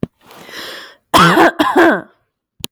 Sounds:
Cough